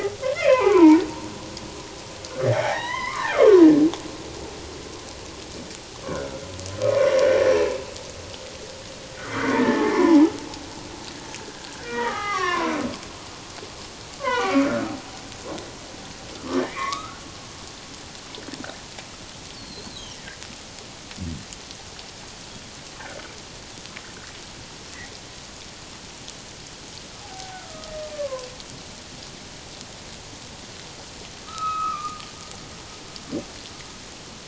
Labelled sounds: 0.3	1.0	humpback whale, 0.78 to 2.7 kHz
2.5	3.6	humpback whale, 0.78 to 6.1 kHz
6.1	7.1	humpback whale, 0.97 to 1.6 kHz
7.5	7.8	humpback whale, 2.6 to 2.8 kHz
9.3	10.4	humpback whale, 0.78 to 2.3 kHz
11.4	12.7	humpback whale, 0.78 to 5.8 kHz
14.2	15.0	humpback whale, 0.88 to 3.2 kHz
16.5	17.2	humpback whale, 0.97 to 2.5 kHz
19.5	20.4	humpback whale, 1.5 to 4.7 kHz
27.2	28.5	humpback whale, 0.78 to 1.4 kHz
31.5	32.2	humpback whale, 1.1 to 4.0 kHz

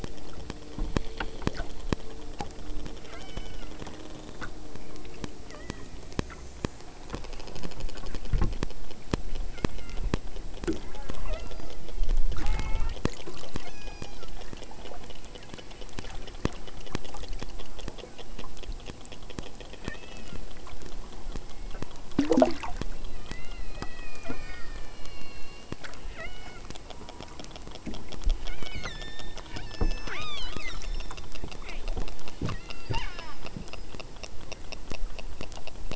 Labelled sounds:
3.0	3.9	killer whale, southern Alaska resident, 0.90 to 6.1 kHz
5.4	6.1	killer whale, southern Alaska resident, 0.54 to 3.4 kHz
9.5	10.2	killer whale, southern Alaska resident, 1.0 to 3.2 kHz
10.7	11.8	killer whale, southern Alaska resident, 0.19 to 5.0 kHz
12.3	13.0	killer whale, southern Alaska resident, 0.57 to 4.8 kHz
13.6	14.3	killer whale, southern Alaska resident, 0.69 to 6.9 kHz
19.8	20.6	killer whale, southern Alaska resident, 0.61 to 7.5 kHz
21.4	22.0	killer whale, southern Alaska resident, 0.74 to 2.8 kHz
23.0	25.8	killer whale, southern Alaska resident, 0.86 to 8.0 kHz
26.2	26.7	killer whale, southern Alaska resident, 0.41 to 5.3 kHz
26.9	27.5	killer whale, southern Alaska resident, 0.80 to 1.3 kHz
28.5	31.3	killer whale, southern Alaska resident, 0.69 to 8.0 kHz
31.6	31.9	killer whale, southern Alaska resident, 0.85 to 4.6 kHz
32.4	33.5	killer whale, southern Alaska resident, 0.46 to 7.6 kHz

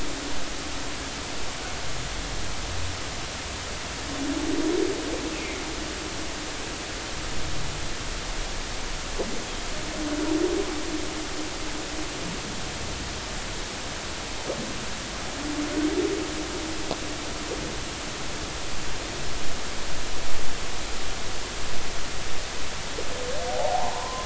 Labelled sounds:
5.3	5.6	humpback whale, 2.0 to 2.7 kHz
23.5	24.2	humpback whale, 0.80 to 1.1 kHz

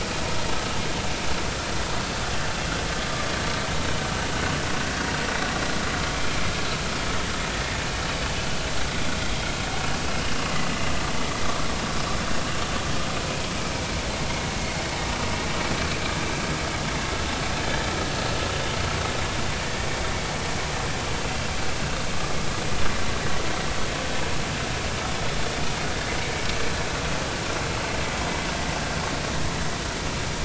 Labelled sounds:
9.2	9.5	vessel noise, 3.1 to 3.3 kHz

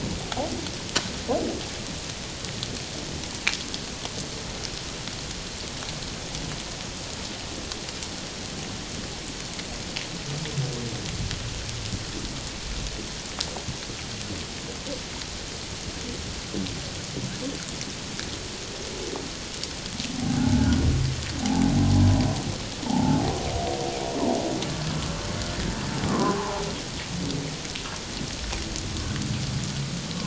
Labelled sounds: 20.1	20.7	humpback whale, 0.78 to 0.94 kHz
21.4	22.1	humpback whale, 0.78 to 1.1 kHz
22.8	23.3	humpback whale, 0.78 to 0.97 kHz
26.1	26.6	humpback whale, 0.78 to 1.3 kHz

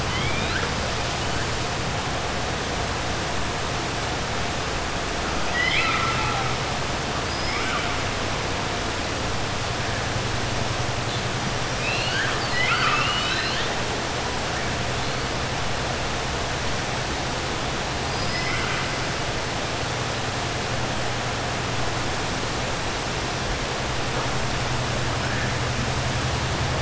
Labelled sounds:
0.0	0.7	killer whale, 1.3 to 4.9 kHz
5.4	6.5	killer whale, 0.84 to 5.1 kHz
7.2	7.9	killer whale, 1.1 to 5.4 kHz
11.7	13.7	killer whale, 1.2 to 5.3 kHz
18.2	18.9	killer whale, 1.1 to 3.2 kHz

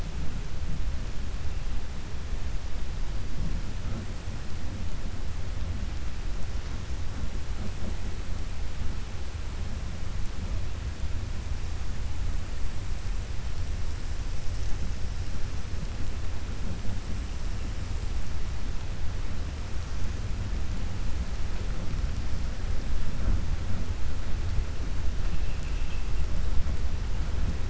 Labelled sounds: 25.4	26.0	vessel noise, 2.3 to 3.4 kHz

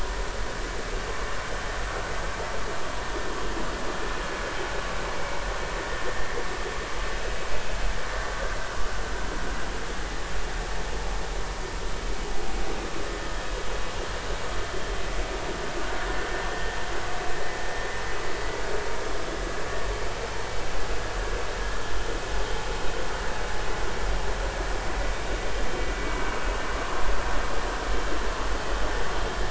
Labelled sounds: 5.2	5.4	vessel noise, 2.2 to 2.3 kHz

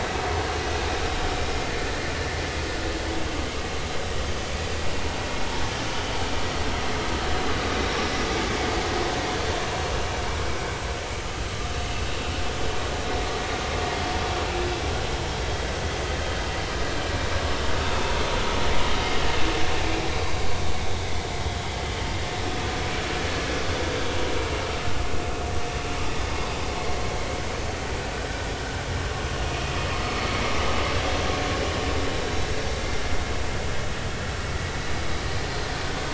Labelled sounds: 7.7	8.0	vessel noise, 3.7 to 3.9 kHz

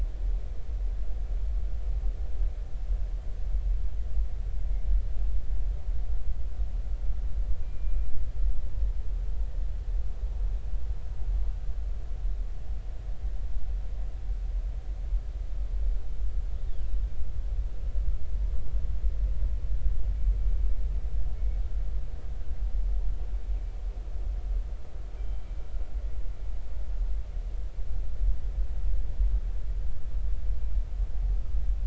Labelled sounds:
7.6	8.1	killer whale, northern resident, 2.3 to 2.5 kHz
21.3	21.6	killer whale, northern resident, 2.1 to 2.3 kHz
25.2	25.5	killer whale, northern resident, 2.3 to 3.2 kHz

